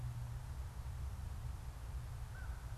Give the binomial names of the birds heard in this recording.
Corvus brachyrhynchos